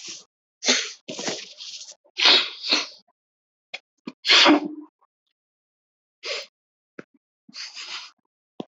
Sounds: Sniff